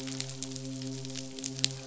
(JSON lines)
{"label": "biophony, midshipman", "recorder": "SoundTrap 500"}